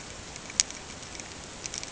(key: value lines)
label: ambient
recorder: HydroMoth